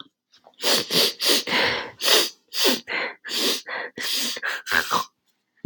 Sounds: Sniff